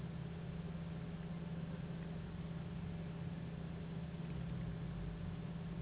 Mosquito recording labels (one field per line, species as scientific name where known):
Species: Anopheles gambiae s.s.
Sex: female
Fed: unfed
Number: one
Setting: insect culture